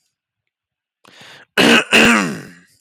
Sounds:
Throat clearing